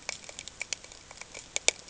{"label": "ambient", "recorder": "HydroMoth"}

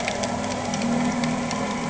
{"label": "anthrophony, boat engine", "recorder": "HydroMoth"}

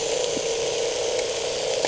{"label": "anthrophony, boat engine", "recorder": "HydroMoth"}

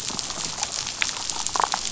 {"label": "biophony, damselfish", "recorder": "SoundTrap 500"}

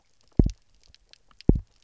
{"label": "biophony, double pulse", "recorder": "SoundTrap 300"}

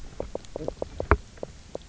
{"label": "biophony, knock croak", "recorder": "SoundTrap 300"}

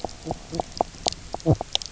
{"label": "biophony, knock croak", "recorder": "SoundTrap 300"}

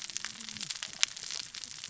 {"label": "biophony, cascading saw", "recorder": "SoundTrap 600 or HydroMoth"}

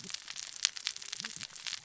{"label": "biophony, cascading saw", "recorder": "SoundTrap 600 or HydroMoth"}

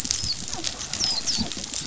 {"label": "biophony, dolphin", "recorder": "SoundTrap 500"}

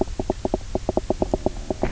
{"label": "biophony, knock croak", "recorder": "SoundTrap 300"}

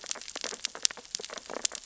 {"label": "biophony, sea urchins (Echinidae)", "recorder": "SoundTrap 600 or HydroMoth"}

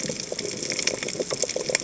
{"label": "biophony, chatter", "recorder": "HydroMoth"}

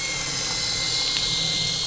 {"label": "anthrophony, boat engine", "recorder": "SoundTrap 500"}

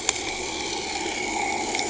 {"label": "anthrophony, boat engine", "recorder": "HydroMoth"}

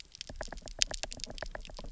{"label": "biophony, knock", "recorder": "SoundTrap 300"}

